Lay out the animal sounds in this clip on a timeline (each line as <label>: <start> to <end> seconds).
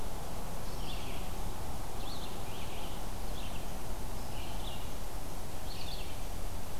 Red-eyed Vireo (Vireo olivaceus): 0.0 to 6.8 seconds